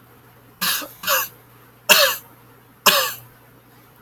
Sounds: Throat clearing